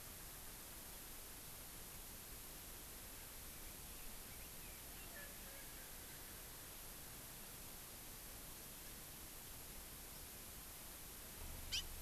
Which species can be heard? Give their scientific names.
Pternistis erckelii, Chlorodrepanis virens